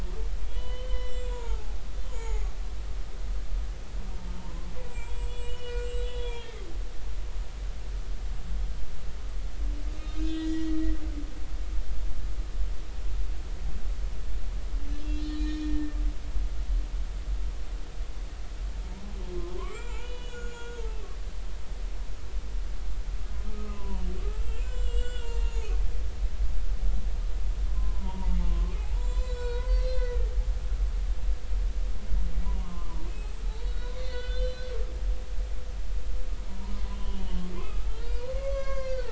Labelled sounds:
0.5	2.5	humpback whale, 0.80 to 7.6 kHz
4.3	6.7	humpback whale, 0.86 to 7.9 kHz
10.0	10.8	humpback whale, 1.2 to 4.2 kHz
15.0	16.0	humpback whale, 1.8 to 5.6 kHz
18.9	21.4	humpback whale, 0.83 to 7.3 kHz
23.5	24.0	humpback whale, 0.90 to 1.3 kHz
24.6	25.7	humpback whale, 0.83 to 7.9 kHz
27.8	30.3	humpback whale, 0.86 to 7.6 kHz
30.9	31.3	humpback whale, 1.8 to 2.1 kHz
32.4	33.3	humpback whale, 0.90 to 2.6 kHz
33.6	34.7	humpback whale, 1.4 to 4.6 kHz
36.5	39.1	humpback whale, 0.90 to 6.1 kHz

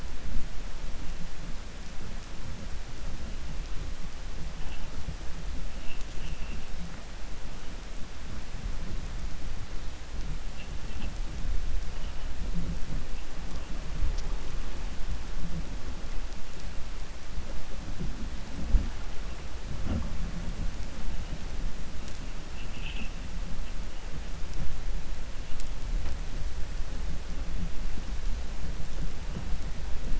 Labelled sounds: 6.1	6.6	vessel noise, 2.6 to 3.4 kHz

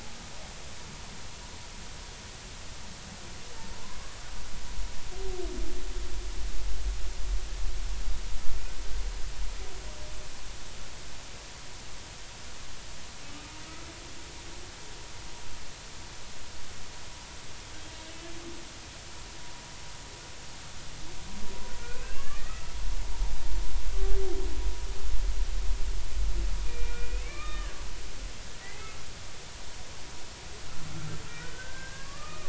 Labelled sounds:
22.0	22.8	humpback whale, 1.0 to 2.8 kHz
26.6	27.8	humpback whale, 1.1 to 2.7 kHz
28.6	29.0	humpback whale, 1.9 to 2.2 kHz
31.4	32.4	humpback whale, 1.1 to 1.7 kHz

